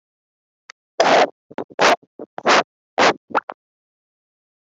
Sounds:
Cough